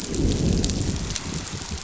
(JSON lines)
{"label": "biophony, growl", "recorder": "SoundTrap 500"}